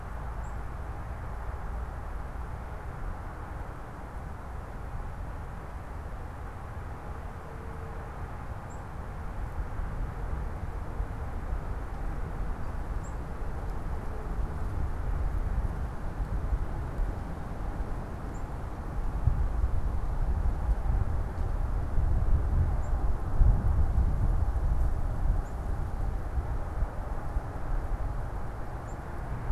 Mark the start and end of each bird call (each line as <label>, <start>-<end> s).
unidentified bird, 0.0-29.5 s